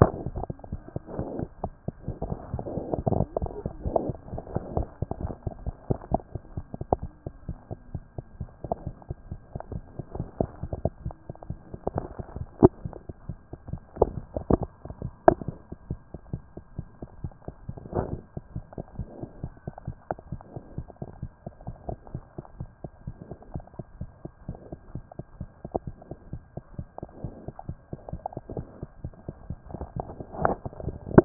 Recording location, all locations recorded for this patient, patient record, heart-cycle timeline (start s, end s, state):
mitral valve (MV)
aortic valve (AV)+pulmonary valve (PV)+mitral valve (MV)
#Age: Infant
#Sex: Female
#Height: nan
#Weight: 9.8 kg
#Pregnancy status: False
#Murmur: Absent
#Murmur locations: nan
#Most audible location: nan
#Systolic murmur timing: nan
#Systolic murmur shape: nan
#Systolic murmur grading: nan
#Systolic murmur pitch: nan
#Systolic murmur quality: nan
#Diastolic murmur timing: nan
#Diastolic murmur shape: nan
#Diastolic murmur grading: nan
#Diastolic murmur pitch: nan
#Diastolic murmur quality: nan
#Outcome: Abnormal
#Campaign: 2014 screening campaign
0.00	5.15	unannotated
5.15	5.23	diastole
5.23	5.33	S1
5.33	5.46	systole
5.46	5.54	S2
5.54	5.64	diastole
5.64	5.74	S1
5.74	5.88	systole
5.88	5.98	S2
5.98	6.12	diastole
6.12	6.22	S1
6.22	6.34	systole
6.34	6.42	S2
6.42	6.56	diastole
6.56	6.66	S1
6.66	6.80	systole
6.80	6.86	S2
6.86	7.00	diastole
7.00	7.10	S1
7.10	7.24	systole
7.24	7.30	S2
7.30	7.48	diastole
7.48	7.58	S1
7.58	7.70	systole
7.70	7.78	S2
7.78	7.94	diastole
7.94	8.04	S1
8.04	8.16	systole
8.16	8.26	S2
8.26	8.40	diastole
8.40	8.50	S1
8.50	8.64	systole
8.64	8.74	S2
8.74	8.86	diastole
8.86	8.96	S1
8.96	9.08	systole
9.08	9.16	S2
9.16	9.30	diastole
9.30	31.25	unannotated